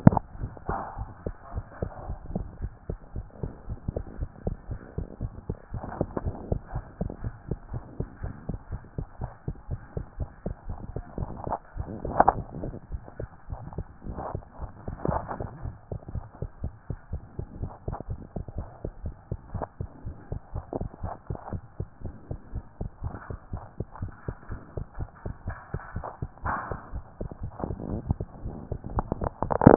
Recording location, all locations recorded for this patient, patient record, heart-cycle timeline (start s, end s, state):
tricuspid valve (TV)
aortic valve (AV)+pulmonary valve (PV)+tricuspid valve (TV)+mitral valve (MV)
#Age: Child
#Sex: Female
#Height: 111.0 cm
#Weight: 18.5 kg
#Pregnancy status: False
#Murmur: Absent
#Murmur locations: nan
#Most audible location: nan
#Systolic murmur timing: nan
#Systolic murmur shape: nan
#Systolic murmur grading: nan
#Systolic murmur pitch: nan
#Systolic murmur quality: nan
#Diastolic murmur timing: nan
#Diastolic murmur shape: nan
#Diastolic murmur grading: nan
#Diastolic murmur pitch: nan
#Diastolic murmur quality: nan
#Outcome: Normal
#Campaign: 2014 screening campaign
0.00	15.64	unannotated
15.64	15.74	S1
15.74	15.90	systole
15.90	16.00	S2
16.00	16.14	diastole
16.14	16.24	S1
16.24	16.40	systole
16.40	16.50	S2
16.50	16.62	diastole
16.62	16.72	S1
16.72	16.88	systole
16.88	16.98	S2
16.98	17.12	diastole
17.12	17.22	S1
17.22	17.38	systole
17.38	17.46	S2
17.46	17.60	diastole
17.60	17.72	S1
17.72	17.86	systole
17.86	17.96	S2
17.96	18.08	diastole
18.08	18.20	S1
18.20	18.36	systole
18.36	18.44	S2
18.44	18.56	diastole
18.56	18.68	S1
18.68	18.84	systole
18.84	18.92	S2
18.92	19.04	diastole
19.04	19.14	S1
19.14	19.30	systole
19.30	19.38	S2
19.38	19.54	diastole
19.54	19.66	S1
19.66	19.80	systole
19.80	19.88	S2
19.88	20.04	diastole
20.04	20.16	S1
20.16	20.30	systole
20.30	20.40	S2
20.40	20.54	diastole
20.54	20.64	S1
20.64	20.78	systole
20.78	20.88	S2
20.88	21.02	diastole
21.02	21.12	S1
21.12	21.28	systole
21.28	21.38	S2
21.38	21.52	diastole
21.52	21.62	S1
21.62	21.78	systole
21.78	21.88	S2
21.88	22.04	diastole
22.04	22.14	S1
22.14	22.30	systole
22.30	22.38	S2
22.38	22.54	diastole
22.54	22.64	S1
22.64	22.80	systole
22.80	22.90	S2
22.90	23.04	diastole
23.04	23.14	S1
23.14	23.28	systole
23.28	23.38	S2
23.38	23.52	diastole
23.52	23.62	S1
23.62	23.78	systole
23.78	23.86	S2
23.86	24.00	diastole
24.00	24.12	S1
24.12	24.26	systole
24.26	24.36	S2
24.36	24.50	diastole
24.50	24.60	S1
24.60	24.76	systole
24.76	24.86	S2
24.86	24.98	diastole
24.98	25.08	S1
25.08	25.24	systole
25.24	25.34	S2
25.34	25.46	diastole
25.46	25.56	S1
25.56	25.72	systole
25.72	25.80	S2
25.80	25.94	diastole
25.94	26.06	S1
26.06	26.20	systole
26.20	26.30	S2
26.30	26.44	diastole
26.44	26.56	S1
26.56	26.70	systole
26.70	26.78	S2
26.78	26.94	diastole
26.94	27.04	S1
27.04	27.20	systole
27.20	27.30	S2
27.30	27.42	diastole
27.42	27.52	S1
27.52	29.76	unannotated